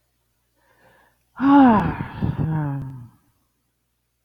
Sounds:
Sigh